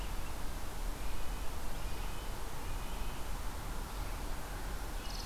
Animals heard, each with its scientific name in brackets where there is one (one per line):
Red-breasted Nuthatch (Sitta canadensis)
Chipping Sparrow (Spizella passerina)